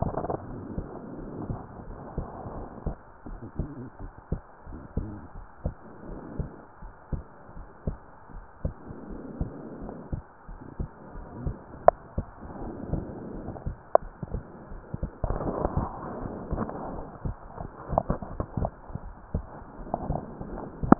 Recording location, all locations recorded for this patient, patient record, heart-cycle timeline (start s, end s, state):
pulmonary valve (PV)
pulmonary valve (PV)+tricuspid valve (TV)
#Age: nan
#Sex: Female
#Height: nan
#Weight: nan
#Pregnancy status: True
#Murmur: Absent
#Murmur locations: nan
#Most audible location: nan
#Systolic murmur timing: nan
#Systolic murmur shape: nan
#Systolic murmur grading: nan
#Systolic murmur pitch: nan
#Systolic murmur quality: nan
#Diastolic murmur timing: nan
#Diastolic murmur shape: nan
#Diastolic murmur grading: nan
#Diastolic murmur pitch: nan
#Diastolic murmur quality: nan
#Outcome: Normal
#Campaign: 2015 screening campaign
0.00	1.20	unannotated
1.20	1.32	S1
1.32	1.48	systole
1.48	1.60	S2
1.60	1.88	diastole
1.88	1.96	S1
1.96	2.14	systole
2.14	2.28	S2
2.28	2.54	diastole
2.54	2.66	S1
2.66	2.82	systole
2.82	2.96	S2
2.96	3.30	diastole
3.30	3.40	S1
3.40	3.58	systole
3.58	3.70	S2
3.70	4.02	diastole
4.02	4.10	S1
4.10	4.28	systole
4.28	4.42	S2
4.42	4.70	diastole
4.70	4.80	S1
4.80	4.96	systole
4.96	5.12	S2
5.12	5.34	diastole
5.34	5.46	S1
5.46	5.60	systole
5.60	5.74	S2
5.74	6.08	diastole
6.08	6.18	S1
6.18	6.36	systole
6.36	6.50	S2
6.50	6.80	diastole
6.80	6.90	S1
6.90	7.08	systole
7.08	7.22	S2
7.22	7.53	diastole
7.53	7.66	S1
7.66	7.86	systole
7.86	7.98	S2
7.98	8.30	diastole
8.30	8.42	S1
8.42	8.60	systole
8.60	8.74	S2
8.74	9.05	diastole
9.05	9.20	S1
9.20	9.38	systole
9.38	9.52	S2
9.52	9.80	diastole
9.80	9.94	S1
9.94	10.10	systole
10.10	10.22	S2
10.22	10.46	diastole
10.46	10.58	S1
10.58	10.76	systole
10.76	10.88	S2
10.88	11.14	diastole
11.14	11.26	S1
11.26	11.44	systole
11.44	11.58	S2
11.58	11.83	diastole
11.83	11.98	S1
11.98	12.15	systole
12.15	12.32	S2
12.32	12.59	diastole
12.59	12.76	S1
12.76	12.90	systole
12.90	13.06	S2
13.06	13.31	diastole
13.31	13.46	S1
13.46	13.64	systole
13.64	13.76	S2
13.76	14.00	diastole
14.00	14.12	S1
14.12	14.30	systole
14.30	14.44	S2
14.44	14.69	diastole
14.69	14.82	S1
14.82	15.00	systole
15.00	15.10	S2
15.10	15.42	diastole
15.42	15.60	S1
15.60	15.74	systole
15.74	15.90	S2
15.90	16.18	diastole
16.18	16.32	S1
16.32	16.50	systole
16.50	16.66	S2
16.66	16.92	diastole
16.92	17.06	S1
17.06	17.24	systole
17.24	17.36	S2
17.36	17.58	diastole
17.58	17.72	S1
17.72	20.99	unannotated